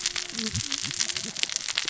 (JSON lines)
{"label": "biophony, cascading saw", "recorder": "SoundTrap 600 or HydroMoth"}